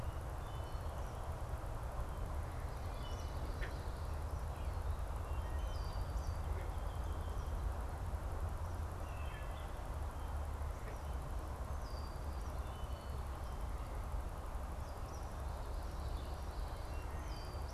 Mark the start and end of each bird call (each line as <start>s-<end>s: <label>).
0.0s-13.3s: Wood Thrush (Hylocichla mustelina)
2.8s-7.5s: Eastern Kingbird (Tyrannus tyrannus)
5.7s-12.3s: Red-winged Blackbird (Agelaius phoeniceus)
15.0s-15.6s: Eastern Kingbird (Tyrannus tyrannus)
15.9s-16.9s: Common Yellowthroat (Geothlypis trichas)
16.9s-17.5s: Wood Thrush (Hylocichla mustelina)